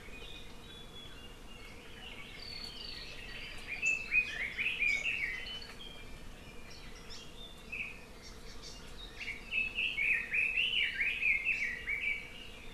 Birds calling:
Hawaii Amakihi (Chlorodrepanis virens)
Red-billed Leiothrix (Leiothrix lutea)

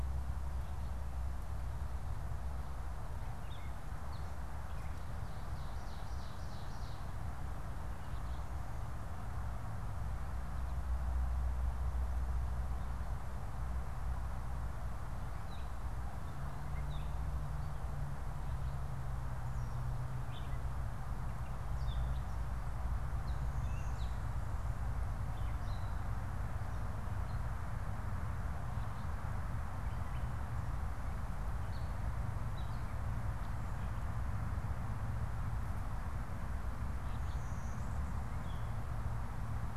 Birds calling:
Ovenbird (Seiurus aurocapilla)
Gray Catbird (Dumetella carolinensis)

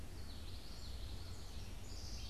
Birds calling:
House Wren (Troglodytes aedon)
Common Yellowthroat (Geothlypis trichas)

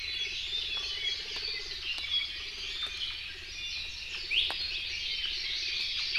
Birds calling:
Red-billed Leiothrix (Leiothrix lutea)
Hawaii Amakihi (Chlorodrepanis virens)
Iiwi (Drepanis coccinea)
Hawaii Creeper (Loxops mana)

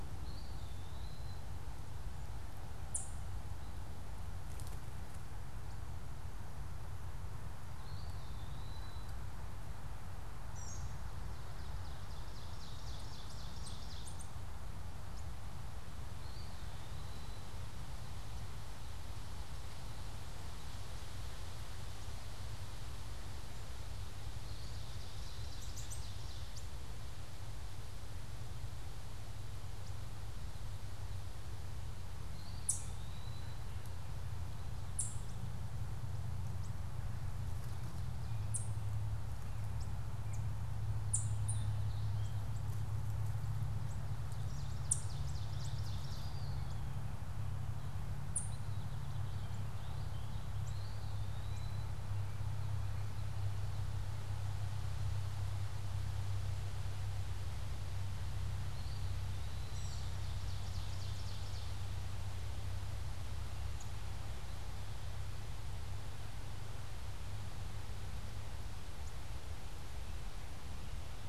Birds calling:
Ovenbird (Seiurus aurocapilla)
American Robin (Turdus migratorius)
Warbling Vireo (Vireo gilvus)
Eastern Wood-Pewee (Contopus virens)

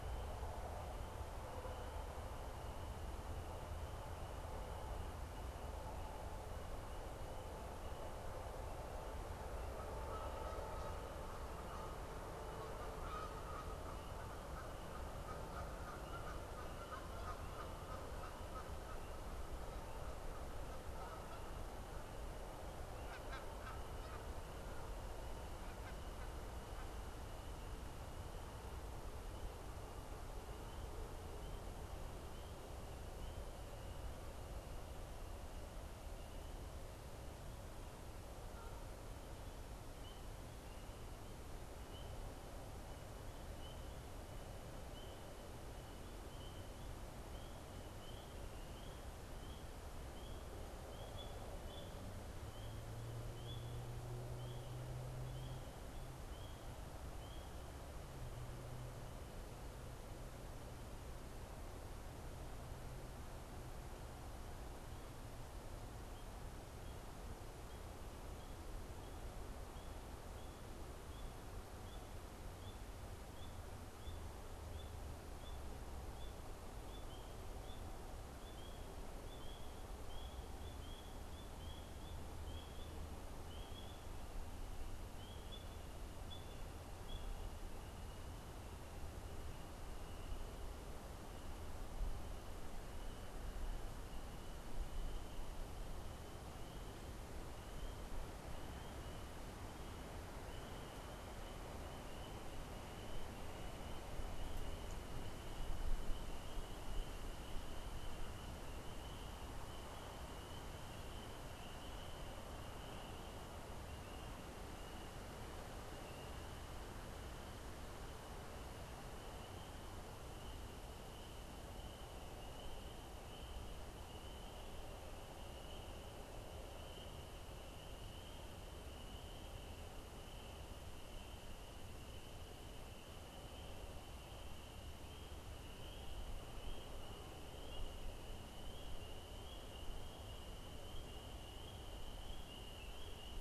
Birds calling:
Canada Goose (Branta canadensis)

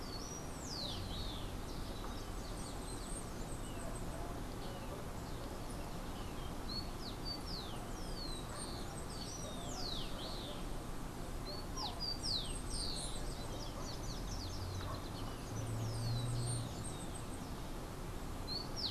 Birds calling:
Bananaquit (Coereba flaveola)
Rufous-collared Sparrow (Zonotrichia capensis)

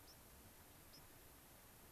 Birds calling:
White-crowned Sparrow (Zonotrichia leucophrys)

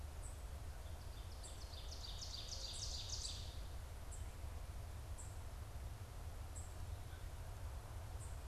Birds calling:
unidentified bird
Ovenbird (Seiurus aurocapilla)

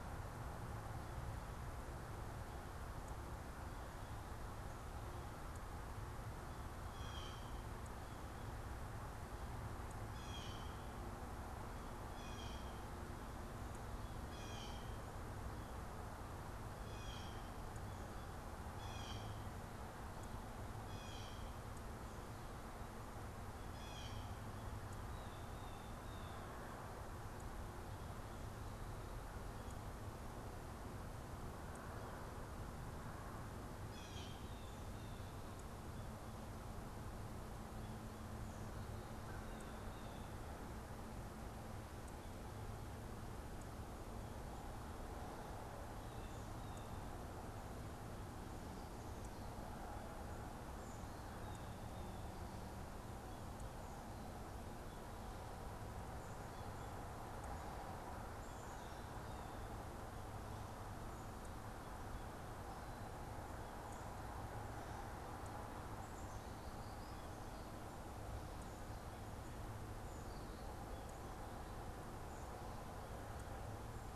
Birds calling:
Blue Jay (Cyanocitta cristata)

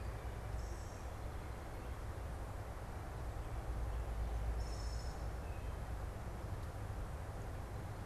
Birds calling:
Song Sparrow (Melospiza melodia)

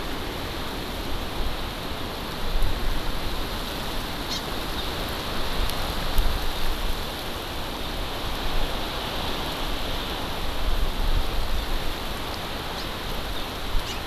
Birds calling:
Hawaii Amakihi (Chlorodrepanis virens)

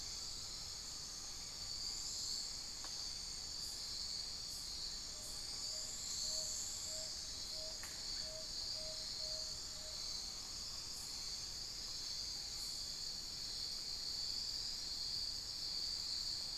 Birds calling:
unidentified bird
Tawny-bellied Screech-Owl (Megascops watsonii)
Amazonian Pygmy-Owl (Glaucidium hardyi)

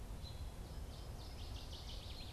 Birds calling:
Northern Waterthrush (Parkesia noveboracensis)
Black-capped Chickadee (Poecile atricapillus)
American Robin (Turdus migratorius)

